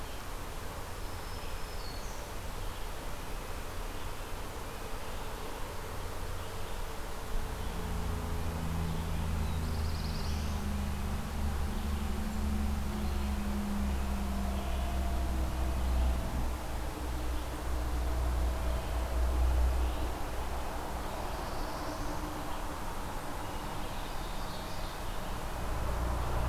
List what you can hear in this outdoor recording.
Red-eyed Vireo, Black-throated Green Warbler, Black-throated Blue Warbler, Red-breasted Nuthatch, Ovenbird